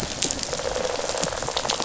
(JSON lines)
{"label": "biophony, rattle response", "recorder": "SoundTrap 500"}